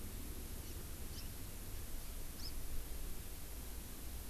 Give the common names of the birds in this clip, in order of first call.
Hawaii Amakihi